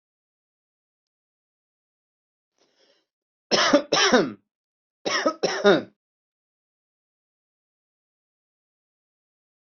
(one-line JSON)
{"expert_labels": [{"quality": "ok", "cough_type": "unknown", "dyspnea": false, "wheezing": false, "stridor": false, "choking": false, "congestion": false, "nothing": true, "diagnosis": "healthy cough", "severity": "pseudocough/healthy cough"}, {"quality": "good", "cough_type": "dry", "dyspnea": false, "wheezing": false, "stridor": false, "choking": false, "congestion": false, "nothing": true, "diagnosis": "upper respiratory tract infection", "severity": "unknown"}, {"quality": "good", "cough_type": "dry", "dyspnea": false, "wheezing": false, "stridor": false, "choking": false, "congestion": false, "nothing": true, "diagnosis": "upper respiratory tract infection", "severity": "mild"}, {"quality": "good", "cough_type": "dry", "dyspnea": false, "wheezing": false, "stridor": false, "choking": false, "congestion": false, "nothing": true, "diagnosis": "upper respiratory tract infection", "severity": "mild"}], "age": 41, "gender": "male", "respiratory_condition": false, "fever_muscle_pain": false, "status": "healthy"}